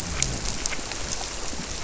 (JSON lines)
{"label": "biophony", "recorder": "SoundTrap 300"}